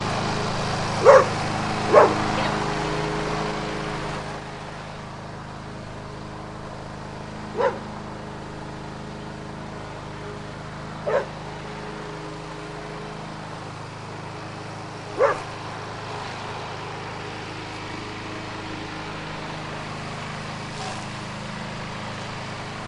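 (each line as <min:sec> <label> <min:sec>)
0:00.0 A lawn mower hums quietly and gradually decreases in volume outdoors. 0:04.2
0:01.0 A dog barks loudly in a repeating pattern outdoors. 0:02.2
0:04.2 A lawn mower hums quietly in a steady pattern outdoors. 0:15.1
0:07.6 A dog barks quietly in a steady pattern outdoors. 0:07.8
0:11.0 A dog barks quietly in a steady pattern outdoors. 0:11.3
0:15.1 A dog barks quietly in a steady pattern outdoors. 0:15.4
0:15.4 A lawn mower hums quietly with a gradually increasing pattern outdoors. 0:22.9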